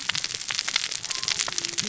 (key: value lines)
label: biophony, cascading saw
recorder: SoundTrap 600 or HydroMoth